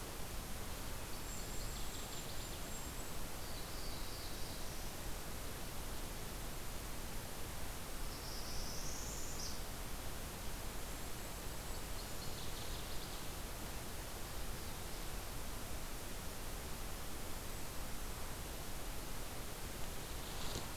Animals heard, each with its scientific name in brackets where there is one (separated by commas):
Northern Parula (Setophaga americana), Black-throated Blue Warbler (Setophaga caerulescens), Golden-crowned Kinglet (Regulus satrapa), Northern Waterthrush (Parkesia noveboracensis)